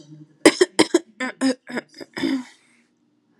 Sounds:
Throat clearing